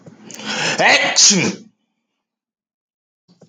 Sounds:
Sneeze